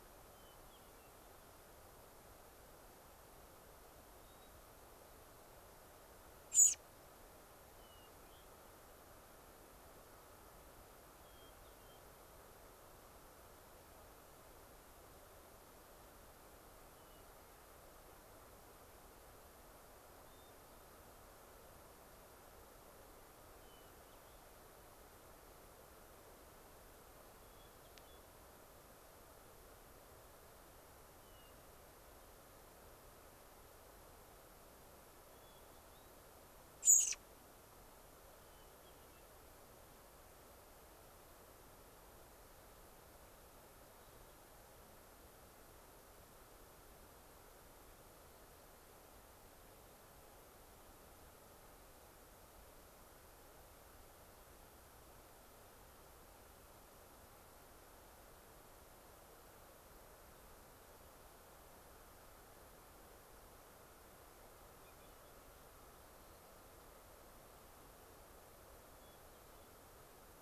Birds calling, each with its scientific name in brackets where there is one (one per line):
American Robin (Turdus migratorius)
Hermit Thrush (Catharus guttatus)